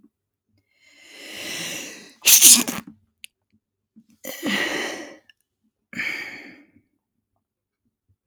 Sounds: Sneeze